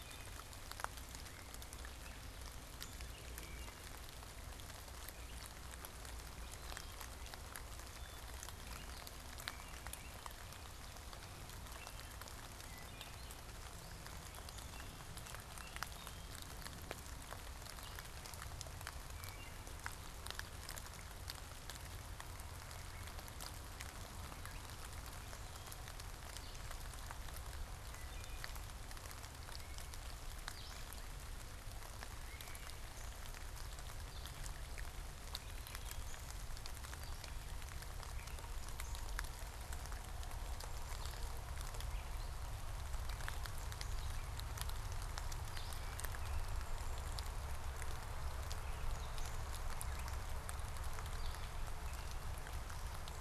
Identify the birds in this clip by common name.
Wood Thrush, Gray Catbird